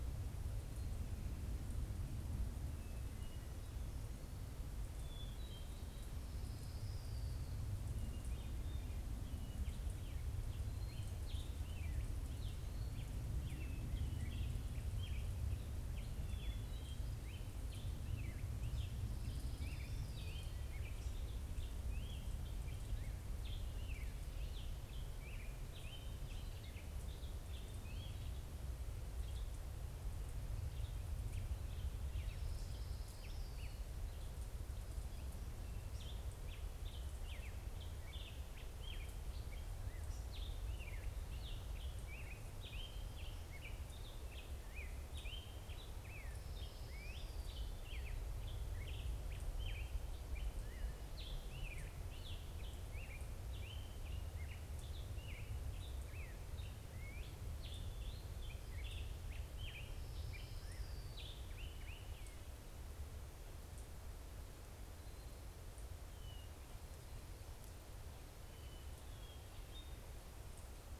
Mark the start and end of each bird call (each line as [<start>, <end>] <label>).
[1.42, 6.12] Hermit Thrush (Catharus guttatus)
[6.02, 7.82] Orange-crowned Warbler (Leiothlypis celata)
[9.12, 28.52] Black-headed Grosbeak (Pheucticus melanocephalus)
[18.82, 20.82] Orange-crowned Warbler (Leiothlypis celata)
[28.92, 31.12] Western Tanager (Piranga ludoviciana)
[31.62, 34.62] Black-headed Grosbeak (Pheucticus melanocephalus)
[31.92, 34.02] Orange-crowned Warbler (Leiothlypis celata)
[35.92, 62.92] Black-headed Grosbeak (Pheucticus melanocephalus)
[59.12, 62.02] Orange-crowned Warbler (Leiothlypis celata)
[64.82, 70.82] Hermit Thrush (Catharus guttatus)